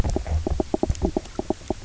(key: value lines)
label: biophony, knock croak
recorder: SoundTrap 300